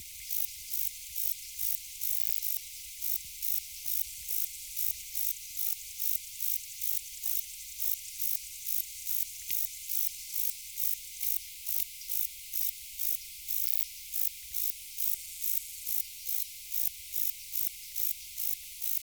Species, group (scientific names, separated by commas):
Modestana ebneri, Orthoptera